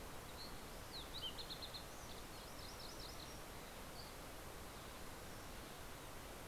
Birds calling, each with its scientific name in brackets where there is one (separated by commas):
Dusky Flycatcher (Empidonax oberholseri), MacGillivray's Warbler (Geothlypis tolmiei), Fox Sparrow (Passerella iliaca)